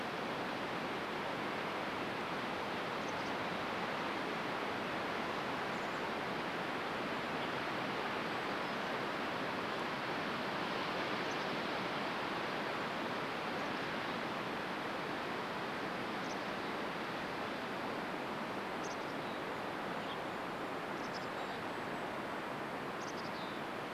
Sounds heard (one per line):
Golden-crowned Kinglet song
Mountain Chickadee call
Chestnut-backed Chickadee call
Western Tanager call